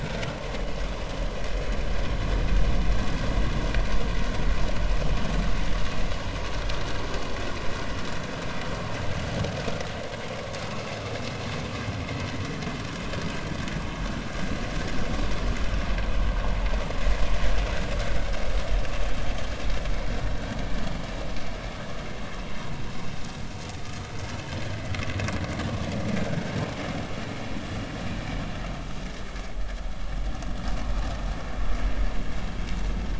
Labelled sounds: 26.7	27.0	vessel noise, 5.4 to 5.5 kHz

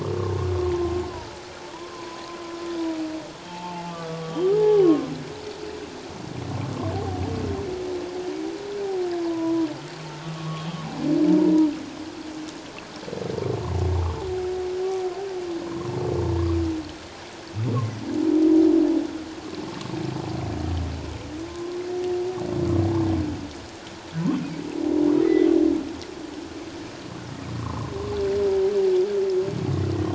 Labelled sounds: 1.9	2.2	humpback whale, 0.94 to 1.1 kHz
3.5	5.1	humpback whale, 0.78 to 1.3 kHz
9.2	10.8	humpback whale, 0.84 to 3.3 kHz
11.4	11.7	humpback whale, 0.88 to 1.0 kHz
15.6	15.9	humpback whale, 0.94 to 1.2 kHz
25.2	25.5	humpback whale, 1.8 to 2.2 kHz
27.6	27.8	humpback whale, 0.97 to 1.3 kHz

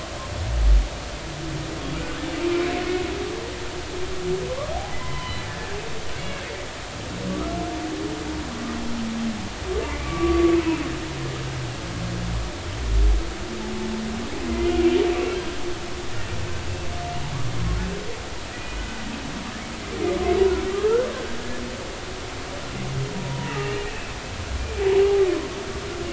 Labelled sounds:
1.9	2.7	humpback whale, 1.2 to 2.5 kHz
4.7	6.5	humpback whale, 0.80 to 3.1 kHz
7.3	7.6	humpback whale, 1.1 to 1.4 kHz
9.8	10.5	humpback whale, 1.1 to 2.4 kHz
18.5	18.9	humpback whale, 1.9 to 2.5 kHz
20.2	21.4	humpback whale, 1.2 to 2.9 kHz
23.1	24.1	humpback whale, 0.90 to 2.9 kHz
24.8	25.0	humpback whale, 0.80 to 0.99 kHz

